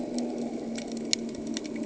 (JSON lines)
{"label": "anthrophony, boat engine", "recorder": "HydroMoth"}